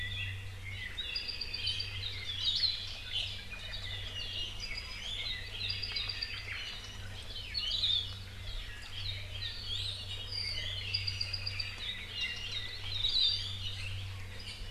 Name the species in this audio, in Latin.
Himatione sanguinea, Loxops coccineus, Drepanis coccinea, Myadestes obscurus